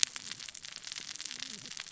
{"label": "biophony, cascading saw", "recorder": "SoundTrap 600 or HydroMoth"}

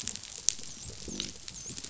{"label": "biophony, dolphin", "recorder": "SoundTrap 500"}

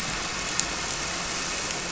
{"label": "anthrophony, boat engine", "recorder": "SoundTrap 300"}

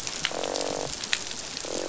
{"label": "biophony, croak", "recorder": "SoundTrap 500"}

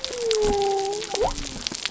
{"label": "biophony", "recorder": "SoundTrap 300"}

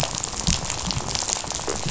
{"label": "biophony, rattle", "recorder": "SoundTrap 500"}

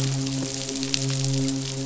{"label": "biophony, midshipman", "recorder": "SoundTrap 500"}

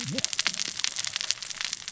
{"label": "biophony, cascading saw", "recorder": "SoundTrap 600 or HydroMoth"}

